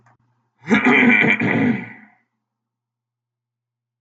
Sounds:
Throat clearing